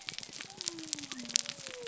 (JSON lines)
{"label": "biophony", "recorder": "SoundTrap 300"}